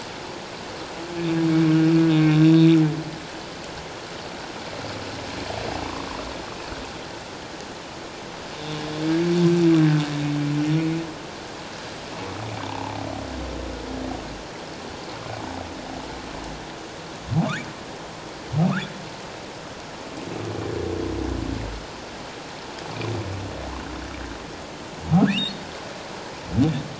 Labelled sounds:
2.1	2.4	humpback whale, 2.3 to 2.5 kHz
8.6	8.8	humpback whale, 3.6 to 3.7 kHz
12.6	13.0	humpback whale, 0.78 to 1.0 kHz
25.3	25.6	humpback whale, 3.3 to 3.9 kHz

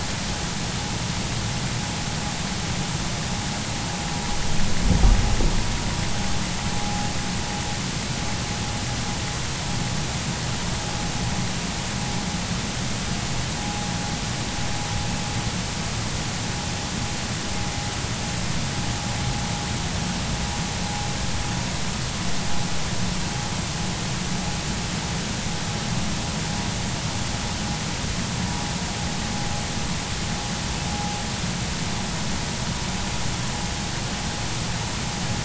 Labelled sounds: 6.8	7.1	vessel noise, 0.80 to 0.86 kHz
13.6	13.8	vessel noise, 0.80 to 0.86 kHz

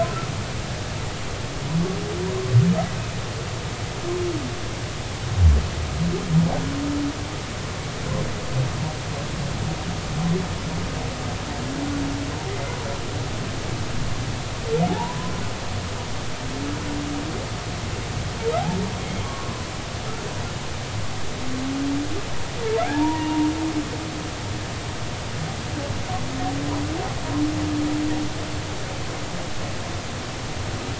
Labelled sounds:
14.9	15.3	humpback whale, 0.80 to 1.1 kHz
19.2	19.5	humpback whale, 1.1 to 1.2 kHz
22.8	23.5	humpback whale, 0.80 to 1.0 kHz

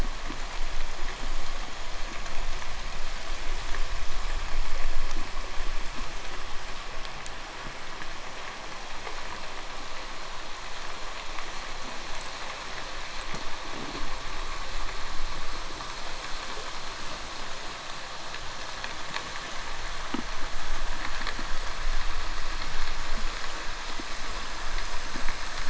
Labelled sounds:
13.0	24.5	vessel noise, 0.62 to 8.0 kHz

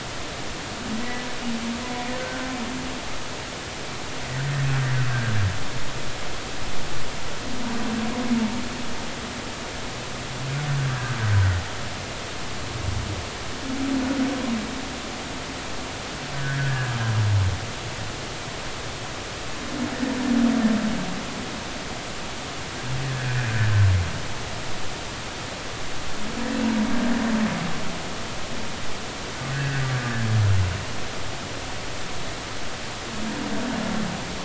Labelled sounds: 2.2	2.4	humpback whale, 1.4 to 1.6 kHz
16.3	16.9	humpback whale, 1.4 to 1.8 kHz
23.1	23.5	humpback whale, 1.4 to 1.8 kHz
29.5	29.8	humpback whale, 1.5 to 1.9 kHz

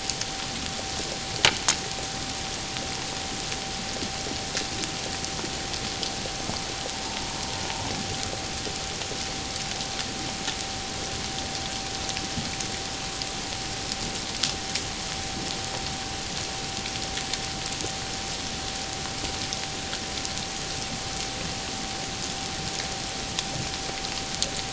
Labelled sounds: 7.1	7.4	humpback whale, 0.84 to 0.97 kHz

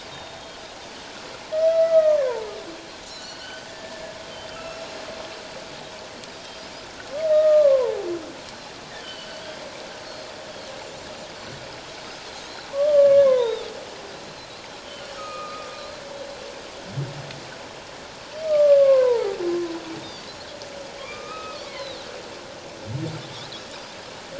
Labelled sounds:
0.1	0.4	humpback whale, 3.6 to 3.8 kHz
1.5	2.5	humpback whale, 0.84 to 2.0 kHz
3.1	3.7	Pacific white-sided dolphin, 1.4 to 4.5 kHz
3.4	4.2	humpback whale, 1.6 to 6.3 kHz
4.5	4.8	humpback whale, 2.5 to 2.8 kHz
7.3	8.1	humpback whale, 0.78 to 2.0 kHz
9.0	9.4	humpback whale, 2.9 to 3.2 kHz
10.1	10.3	Pacific white-sided dolphin, 4.2 to 4.4 kHz
12.7	13.7	humpback whale, 0.84 to 4.0 kHz
15.2	15.7	humpback whale, 1.1 to 2.6 kHz
18.5	19.4	humpback whale, 0.78 to 1.3 kHz
21.0	21.9	humpback whale, 1.0 to 2.6 kHz

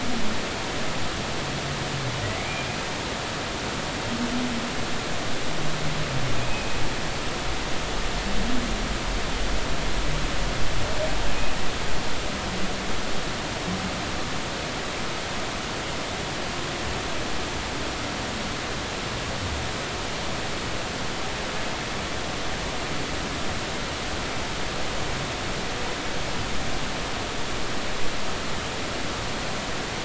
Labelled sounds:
2.4	2.8	humpback whale, 2.1 to 2.5 kHz
6.4	6.7	humpback whale, 2.4 to 2.6 kHz

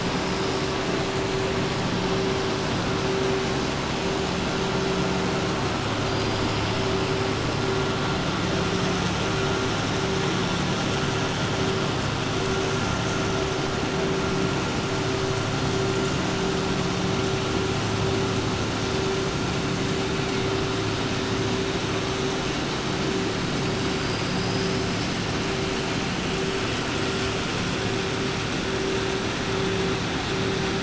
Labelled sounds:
23.9	24.8	killer whale, 4.5 to 5.6 kHz

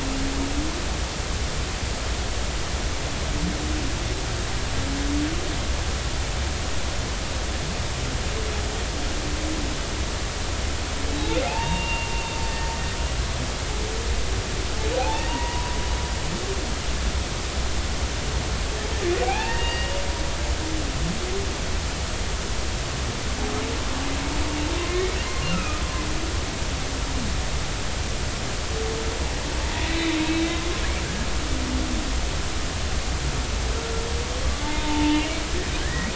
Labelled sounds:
11.4	12.4	humpback whale, 0.80 to 2.8 kHz
15.0	15.8	humpback whale, 0.80 to 1.0 kHz
19.2	20.0	humpback whale, 0.80 to 2.9 kHz
24.9	25.8	humpback whale, 1.2 to 2.8 kHz
30.5	30.8	humpback whale, 0.99 to 1.1 kHz
34.6	36.1	humpback whale, 0.83 to 2.0 kHz

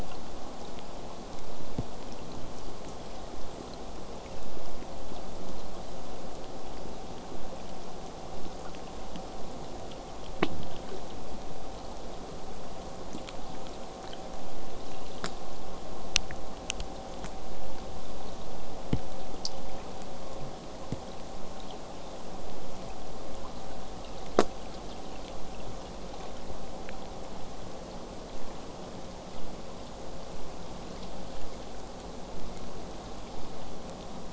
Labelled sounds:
29.3	34.3	vessel noise, 0 to 8.0 kHz

